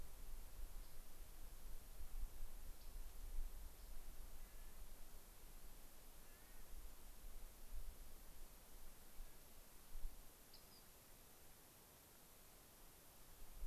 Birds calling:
Rock Wren (Salpinctes obsoletus), Clark's Nutcracker (Nucifraga columbiana), unidentified bird

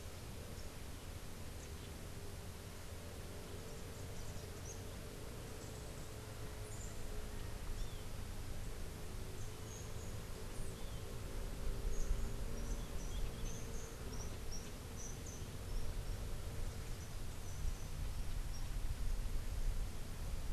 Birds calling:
Rufous-tailed Hummingbird (Amazilia tzacatl)

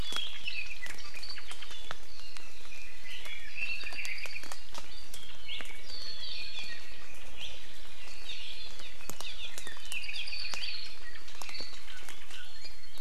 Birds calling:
Red-billed Leiothrix (Leiothrix lutea), Apapane (Himatione sanguinea), Iiwi (Drepanis coccinea)

